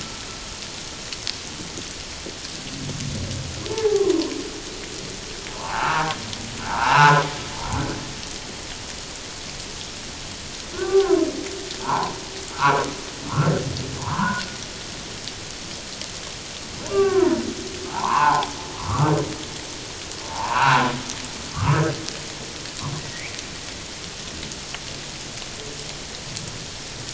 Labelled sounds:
3.7	4.1	humpback whale, 0.78 to 0.94 kHz
5.5	6.1	humpback whale, 0.78 to 2.8 kHz
6.6	7.2	humpback whale, 0.78 to 1.7 kHz
10.7	11.2	humpback whale, 0.78 to 1.6 kHz
11.8	12.8	humpback whale, 0.78 to 1.6 kHz
14.0	14.4	humpback whale, 0.78 to 1.7 kHz
16.9	18.5	humpback whale, 0.78 to 2.8 kHz
18.8	19.1	humpback whale, 0.94 to 1.4 kHz
20.2	20.9	humpback whale, 0.78 to 2.9 kHz
21.5	21.8	humpback whale, 0.91 to 1.5 kHz
23.0	23.4	humpback whale, 1.8 to 2.6 kHz

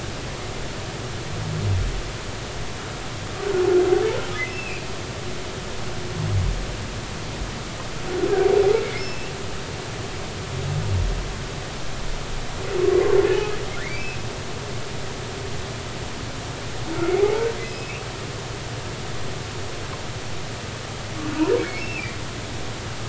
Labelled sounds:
4.5	4.8	humpback whale, 2.3 to 2.8 kHz
9.0	9.4	humpback whale, 2.6 to 5.4 kHz
13.2	14.1	humpback whale, 2.1 to 2.6 kHz
17.2	18.0	humpback whale, 0.80 to 2.8 kHz
21.6	22.0	humpback whale, 2.1 to 2.8 kHz

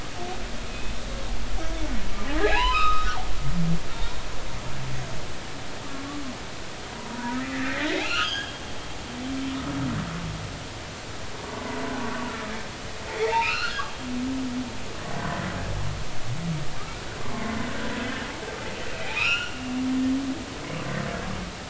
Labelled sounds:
0.7	1.0	humpback whale, 2.5 to 2.6 kHz
2.4	3.2	humpback whale, 0.80 to 5.2 kHz
3.7	4.1	humpback whale, 3.6 to 3.9 kHz
6.9	8.6	humpback whale, 0.90 to 3.4 kHz
11.5	12.5	humpback whale, 0.90 to 1.4 kHz
13.1	14.1	humpback whale, 0.80 to 4.4 kHz
15.2	15.4	humpback whale, 0.96 to 1.1 kHz
18.9	19.6	humpback whale, 1.2 to 3.1 kHz

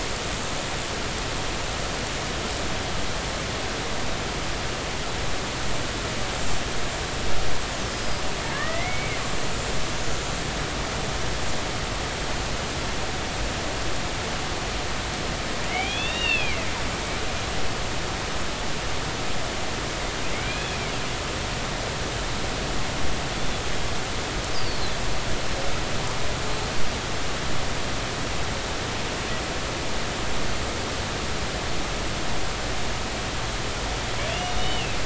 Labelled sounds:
7.9	9.2	humpback whale, 1.0 to 5.2 kHz
15.6	16.7	humpback whale, 1.7 to 3.8 kHz
20.3	20.8	humpback whale, 2.0 to 2.6 kHz
23.3	24.9	humpback whale, 3.4 to 5.2 kHz
34.3	35.0	humpback whale, 2.5 to 3.8 kHz

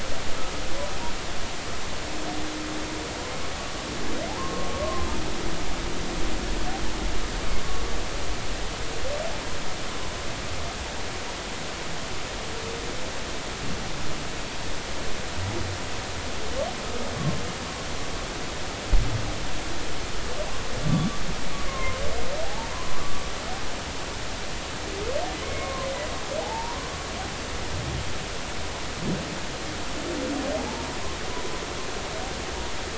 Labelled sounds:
4.3	5.1	humpback whale, 0.80 to 1.1 kHz
21.7	23.2	humpback whale, 0.80 to 2.2 kHz
25.4	25.9	humpback whale, 0.99 to 2.3 kHz
26.4	26.8	humpback whale, 0.80 to 1.1 kHz

